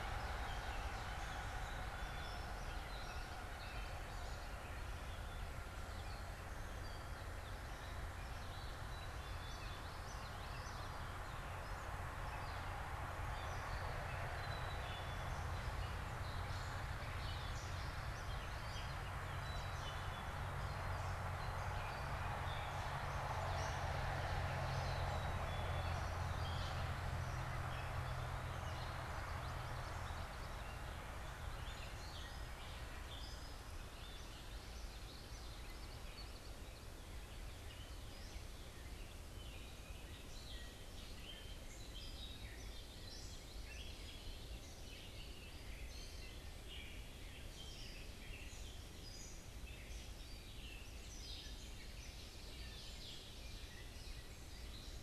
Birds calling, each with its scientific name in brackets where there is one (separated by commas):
Gray Catbird (Dumetella carolinensis), Common Yellowthroat (Geothlypis trichas), Black-capped Chickadee (Poecile atricapillus)